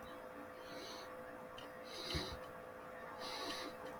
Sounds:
Sniff